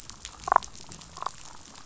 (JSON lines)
{"label": "biophony, damselfish", "recorder": "SoundTrap 500"}